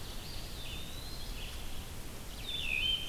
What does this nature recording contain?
Ovenbird, Red-eyed Vireo, Eastern Wood-Pewee, Wood Thrush